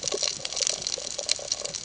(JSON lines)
{"label": "ambient", "recorder": "HydroMoth"}